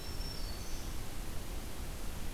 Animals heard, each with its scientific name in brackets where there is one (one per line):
Black-throated Green Warbler (Setophaga virens)